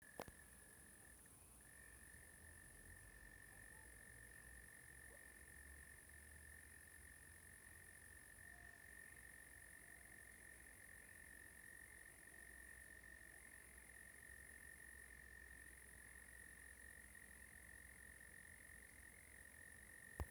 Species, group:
Gryllotalpa gryllotalpa
Orthoptera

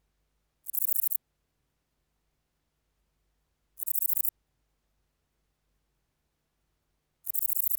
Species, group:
Antaxius difformis
Orthoptera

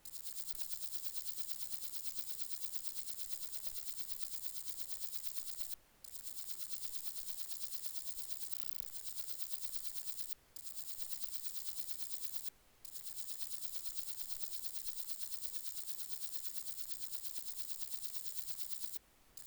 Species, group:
Parnassiana coracis
Orthoptera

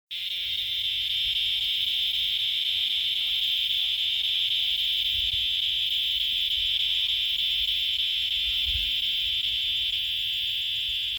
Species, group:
Diceroprocta grossa
Cicadidae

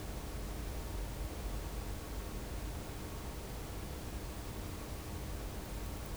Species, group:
Metaplastes ornatus
Orthoptera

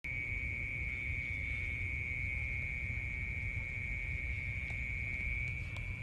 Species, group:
Gryllotalpa orientalis
Orthoptera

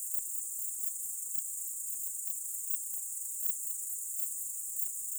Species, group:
Pholidoptera griseoaptera
Orthoptera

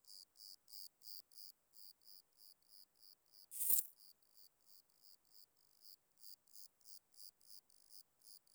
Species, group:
Eumodicogryllus bordigalensis
Orthoptera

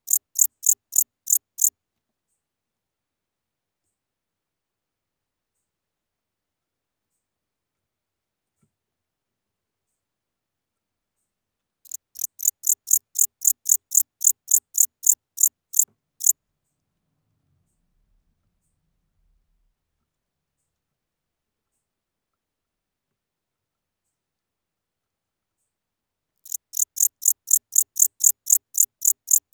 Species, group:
Pholidoptera aptera
Orthoptera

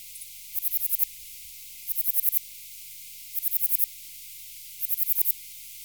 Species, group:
Platycleis albopunctata
Orthoptera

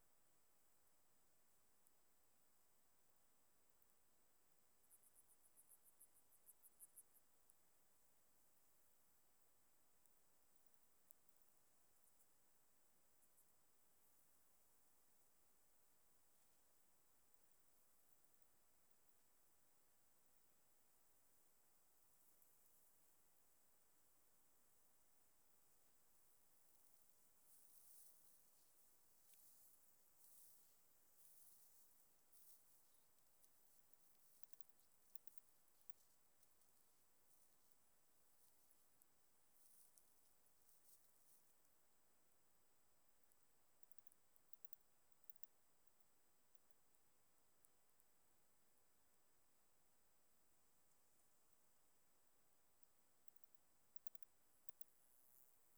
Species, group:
Barbitistes serricauda
Orthoptera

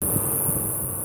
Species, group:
Neoconocephalus triops
Orthoptera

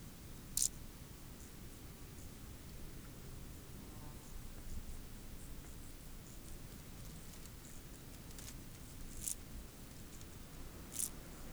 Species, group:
Chorthippus brunneus
Orthoptera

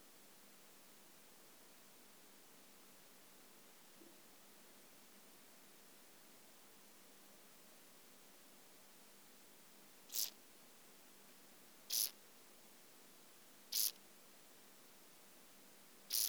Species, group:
Chorthippus brunneus
Orthoptera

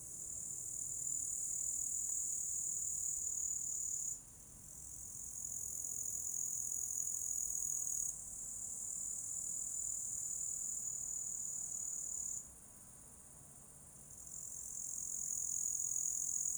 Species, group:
Tettigonia cantans
Orthoptera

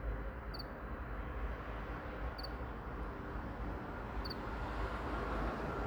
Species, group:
Acheta domesticus
Orthoptera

